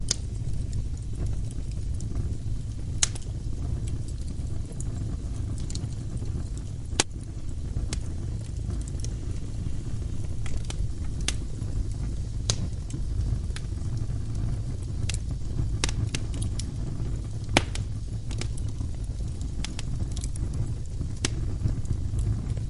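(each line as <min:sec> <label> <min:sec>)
0:00.0 Wood crackling in flames. 0:22.7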